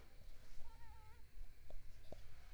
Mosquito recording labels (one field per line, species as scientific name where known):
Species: Mansonia africanus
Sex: female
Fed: unfed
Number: one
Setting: cup